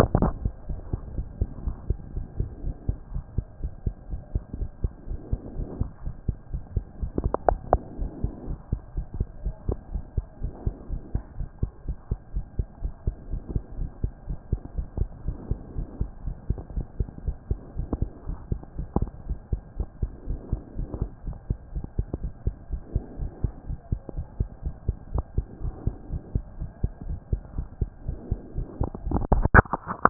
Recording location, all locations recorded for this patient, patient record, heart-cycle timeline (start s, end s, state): mitral valve (MV)
aortic valve (AV)+pulmonary valve (PV)+tricuspid valve (TV)+mitral valve (MV)
#Age: Child
#Sex: Male
#Height: 123.0 cm
#Weight: 22.4 kg
#Pregnancy status: False
#Murmur: Absent
#Murmur locations: nan
#Most audible location: nan
#Systolic murmur timing: nan
#Systolic murmur shape: nan
#Systolic murmur grading: nan
#Systolic murmur pitch: nan
#Systolic murmur quality: nan
#Diastolic murmur timing: nan
#Diastolic murmur shape: nan
#Diastolic murmur grading: nan
#Diastolic murmur pitch: nan
#Diastolic murmur quality: nan
#Outcome: Normal
#Campaign: 2014 screening campaign
0.00	0.58	unannotated
0.58	0.68	diastole
0.68	0.80	S1
0.80	0.92	systole
0.92	1.00	S2
1.00	1.14	diastole
1.14	1.26	S1
1.26	1.40	systole
1.40	1.48	S2
1.48	1.64	diastole
1.64	1.76	S1
1.76	1.88	systole
1.88	1.98	S2
1.98	2.14	diastole
2.14	2.26	S1
2.26	2.38	systole
2.38	2.48	S2
2.48	2.64	diastole
2.64	2.74	S1
2.74	2.88	systole
2.88	2.96	S2
2.96	3.14	diastole
3.14	3.24	S1
3.24	3.36	systole
3.36	3.46	S2
3.46	3.62	diastole
3.62	3.72	S1
3.72	3.84	systole
3.84	3.94	S2
3.94	4.10	diastole
4.10	4.20	S1
4.20	4.34	systole
4.34	4.42	S2
4.42	4.58	diastole
4.58	4.70	S1
4.70	4.82	systole
4.82	4.92	S2
4.92	5.08	diastole
5.08	5.18	S1
5.18	5.30	systole
5.30	5.40	S2
5.40	5.56	diastole
5.56	5.68	S1
5.68	5.80	systole
5.80	5.90	S2
5.90	6.04	diastole
6.04	6.14	S1
6.14	6.26	systole
6.26	6.36	S2
6.36	6.52	diastole
6.52	6.62	S1
6.62	6.74	systole
6.74	6.84	S2
6.84	7.00	diastole
7.00	7.12	S1
7.12	7.22	systole
7.22	7.32	S2
7.32	7.48	diastole
7.48	7.58	S1
7.58	7.72	systole
7.72	7.81	S2
7.81	7.98	diastole
7.98	8.10	S1
8.10	8.22	systole
8.22	8.32	S2
8.32	8.46	diastole
8.46	8.58	S1
8.58	8.70	systole
8.70	8.80	S2
8.80	8.96	diastole
8.96	9.06	S1
9.06	9.16	systole
9.16	9.26	S2
9.26	9.44	diastole
9.44	9.54	S1
9.54	9.68	systole
9.68	9.78	S2
9.78	9.92	diastole
9.92	10.04	S1
10.04	10.16	systole
10.16	10.26	S2
10.26	10.42	diastole
10.42	10.52	S1
10.52	10.64	systole
10.64	10.74	S2
10.74	10.90	diastole
10.90	11.00	S1
11.00	11.14	systole
11.14	11.22	S2
11.22	11.38	diastole
11.38	11.48	S1
11.48	11.62	systole
11.62	11.70	S2
11.70	11.86	diastole
11.86	11.96	S1
11.96	12.10	systole
12.10	12.18	S2
12.18	12.34	diastole
12.34	12.44	S1
12.44	12.58	systole
12.58	12.66	S2
12.66	12.82	diastole
12.82	12.92	S1
12.92	13.06	systole
13.06	13.16	S2
13.16	13.30	diastole
13.30	13.42	S1
13.42	13.54	systole
13.54	13.62	S2
13.62	13.78	diastole
13.78	13.90	S1
13.90	14.02	systole
14.02	14.12	S2
14.12	14.28	diastole
14.28	14.38	S1
14.38	14.50	systole
14.50	14.60	S2
14.60	14.76	diastole
14.76	14.86	S1
14.86	14.98	systole
14.98	15.08	S2
15.08	15.26	diastole
15.26	15.36	S1
15.36	15.50	systole
15.50	15.58	S2
15.58	15.76	diastole
15.76	15.86	S1
15.86	16.00	systole
16.00	16.10	S2
16.10	16.26	diastole
16.26	16.36	S1
16.36	16.48	systole
16.48	16.58	S2
16.58	16.76	diastole
16.76	16.86	S1
16.86	16.98	systole
16.98	17.08	S2
17.08	17.26	diastole
17.26	17.36	S1
17.36	17.50	systole
17.50	17.58	S2
17.58	17.76	diastole
17.76	17.88	S1
17.88	18.00	systole
18.00	18.10	S2
18.10	18.28	diastole
18.28	18.38	S1
18.38	18.50	systole
18.50	18.60	S2
18.60	18.78	diastole
18.78	18.88	S1
18.88	18.98	systole
18.98	19.08	S2
19.08	19.28	diastole
19.28	19.38	S1
19.38	19.52	systole
19.52	19.62	S2
19.62	19.78	diastole
19.78	19.88	S1
19.88	20.00	systole
20.00	20.10	S2
20.10	20.28	diastole
20.28	20.40	S1
20.40	20.50	systole
20.50	20.60	S2
20.60	20.78	diastole
20.78	20.88	S1
20.88	21.00	systole
21.00	21.10	S2
21.10	21.26	diastole
21.26	21.36	S1
21.36	21.48	systole
21.48	21.58	S2
21.58	21.74	diastole
21.74	21.84	S1
21.84	21.98	systole
21.98	22.06	S2
22.06	22.22	diastole
22.22	22.32	S1
22.32	22.46	systole
22.46	22.54	S2
22.54	22.70	diastole
22.70	22.82	S1
22.82	22.94	systole
22.94	23.02	S2
23.02	23.20	diastole
23.20	23.30	S1
23.30	23.42	systole
23.42	23.52	S2
23.52	23.68	diastole
23.68	23.78	S1
23.78	23.90	systole
23.90	24.00	S2
24.00	24.16	diastole
24.16	24.26	S1
24.26	24.38	systole
24.38	24.48	S2
24.48	24.64	diastole
24.64	24.74	S1
24.74	24.86	systole
24.86	24.96	S2
24.96	25.14	diastole
25.14	25.24	S1
25.24	25.36	systole
25.36	25.46	S2
25.46	25.62	diastole
25.62	25.74	S1
25.74	25.86	systole
25.86	25.94	S2
25.94	26.10	diastole
26.10	26.22	S1
26.22	26.34	systole
26.34	26.44	S2
26.44	26.60	diastole
26.60	26.70	S1
26.70	26.82	systole
26.82	26.92	S2
26.92	27.08	diastole
27.08	27.18	S1
27.18	27.32	systole
27.32	27.40	S2
27.40	27.56	diastole
27.56	27.66	S1
27.66	27.80	systole
27.80	27.90	S2
27.90	28.06	diastole
28.06	28.18	S1
28.18	28.30	systole
28.30	28.40	S2
28.40	28.56	diastole
28.56	28.66	S1
28.66	28.80	systole
28.80	28.90	S2
28.90	29.08	diastole
29.08	30.10	unannotated